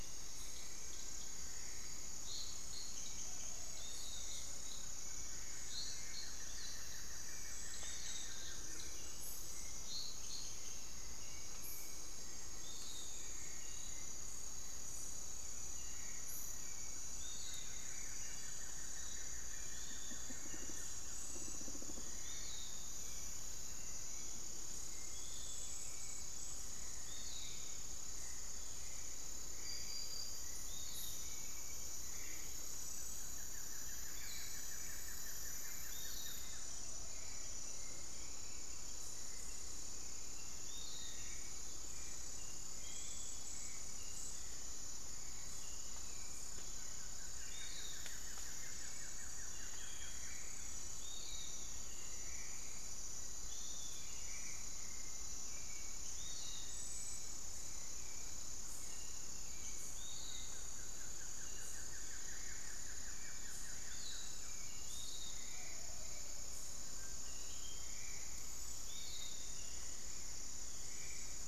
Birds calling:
unidentified bird
Spot-winged Antshrike (Pygiptila stellaris)
Piratic Flycatcher (Legatus leucophaius)
Buff-throated Woodcreeper (Xiphorhynchus guttatus)
Long-winged Antwren (Myrmotherula longipennis)
Hauxwell's Thrush (Turdus hauxwelli)

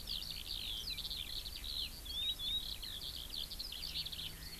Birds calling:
Eurasian Skylark (Alauda arvensis)

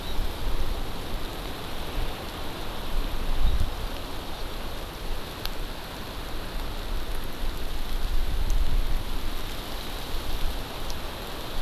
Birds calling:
Hawaii Amakihi (Chlorodrepanis virens)

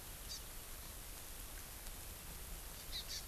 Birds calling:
Hawaii Amakihi (Chlorodrepanis virens)

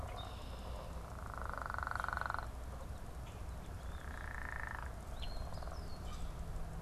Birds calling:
unidentified bird
Eastern Phoebe (Sayornis phoebe)
Red-winged Blackbird (Agelaius phoeniceus)

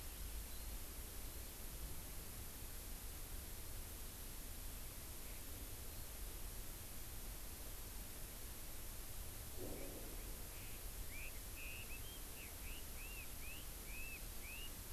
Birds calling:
Chinese Hwamei (Garrulax canorus)

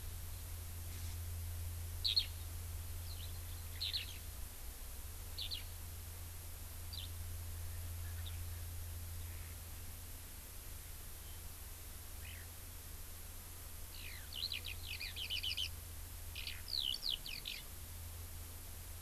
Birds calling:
Eurasian Skylark (Alauda arvensis)

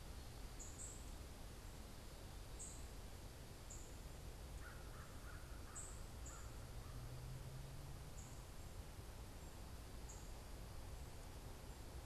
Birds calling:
American Crow (Corvus brachyrhynchos)
unidentified bird

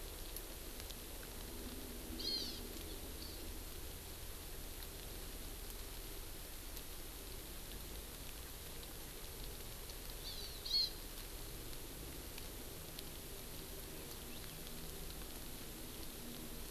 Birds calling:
Hawaii Amakihi (Chlorodrepanis virens)
Hawaiian Hawk (Buteo solitarius)

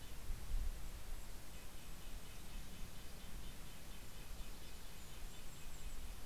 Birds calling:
Golden-crowned Kinglet (Regulus satrapa)
Red-breasted Nuthatch (Sitta canadensis)

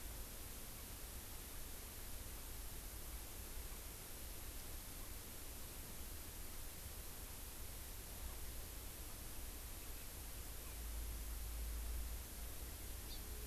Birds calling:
Hawaii Amakihi (Chlorodrepanis virens)

